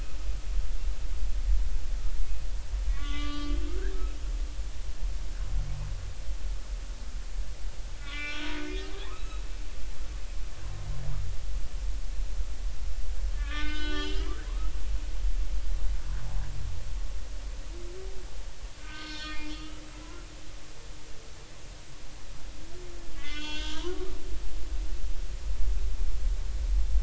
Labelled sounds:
2.9	3.6	humpback whale, 1.1 to 4.7 kHz
8.0	9.5	humpback whale, 1.1 to 4.3 kHz
13.3	14.5	humpback whale, 0.96 to 5.2 kHz
18.8	20.3	humpback whale, 0.96 to 5.6 kHz
23.2	24.1	humpback whale, 0.86 to 4.6 kHz

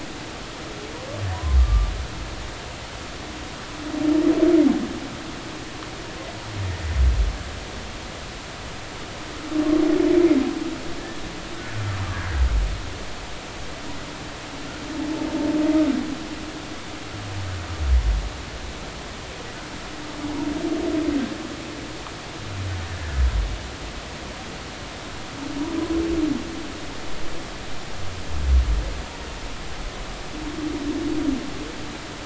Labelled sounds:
1.3	1.9	humpback whale, 0.93 to 1.2 kHz

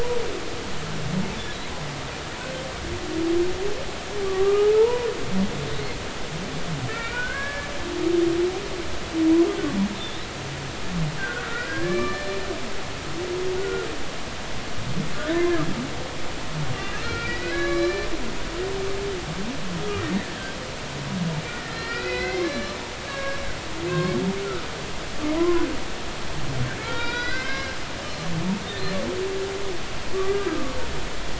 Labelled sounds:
4.2	5.1	humpback whale, 0.83 to 1.3 kHz
6.9	7.7	humpback whale, 1.3 to 2.5 kHz
11.2	12.4	humpback whale, 1.1 to 4.2 kHz
13.6	13.9	humpback whale, 1.3 to 1.5 kHz
15.3	15.6	humpback whale, 0.99 to 1.1 kHz
16.9	18.1	humpback whale, 1.1 to 4.9 kHz
20.0	20.4	humpback whale, 1.7 to 2.2 kHz
21.7	23.5	humpback whale, 1.1 to 4.8 kHz
23.9	24.7	humpback whale, 1.2 to 1.7 kHz
25.4	25.7	humpback whale, 0.96 to 1.1 kHz
26.8	27.8	humpback whale, 0.86 to 5.0 kHz
30.1	30.5	humpback whale, 1.1 to 1.2 kHz

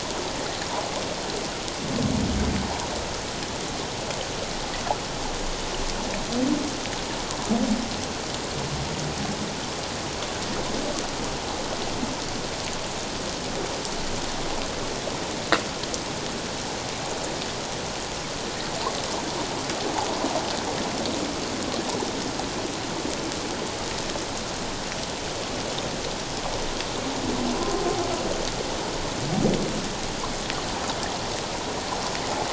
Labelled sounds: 27.6	27.8	humpback whale, 0.97 to 1.1 kHz

